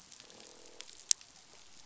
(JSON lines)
{"label": "biophony, croak", "recorder": "SoundTrap 500"}